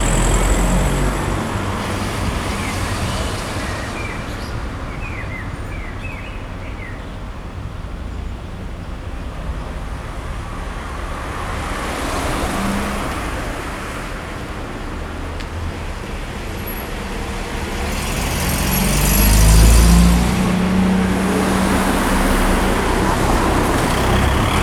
What kind of animals are here?
birds